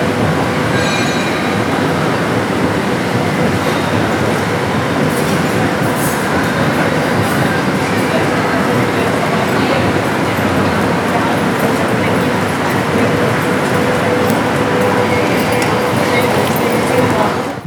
Are people talking in the background?
yes